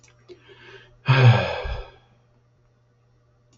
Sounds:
Sigh